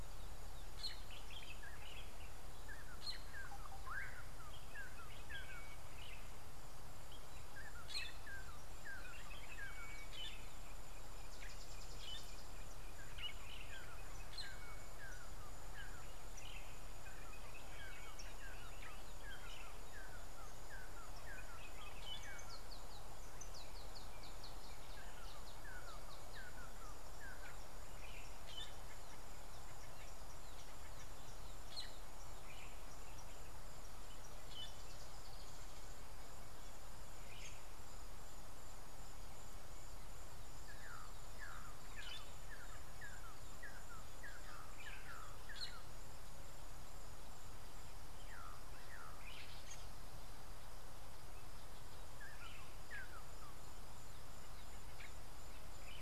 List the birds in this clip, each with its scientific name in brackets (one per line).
Fork-tailed Drongo (Dicrurus adsimilis)
Red-and-yellow Barbet (Trachyphonus erythrocephalus)